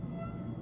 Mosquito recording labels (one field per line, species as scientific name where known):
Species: Aedes albopictus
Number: one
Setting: insect culture